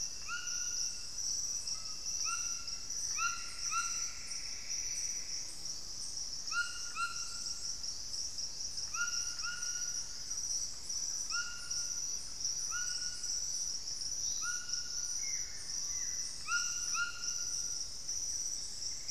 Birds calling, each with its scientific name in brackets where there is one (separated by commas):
White-throated Toucan (Ramphastos tucanus), Buff-throated Woodcreeper (Xiphorhynchus guttatus), Screaming Piha (Lipaugus vociferans), Plumbeous Antbird (Myrmelastes hyperythrus), Black-faced Antthrush (Formicarius analis)